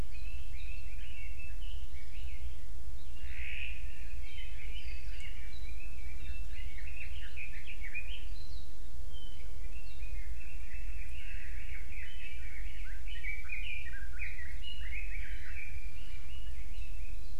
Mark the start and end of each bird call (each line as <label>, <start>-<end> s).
Red-billed Leiothrix (Leiothrix lutea), 0.1-2.6 s
Red-billed Leiothrix (Leiothrix lutea), 4.1-8.4 s
Red-billed Leiothrix (Leiothrix lutea), 9.2-17.4 s